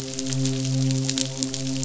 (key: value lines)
label: biophony, midshipman
recorder: SoundTrap 500